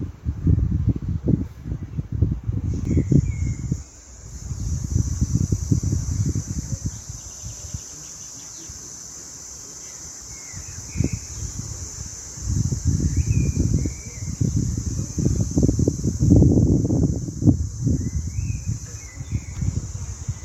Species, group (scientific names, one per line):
Tibicina haematodes
Cicadidae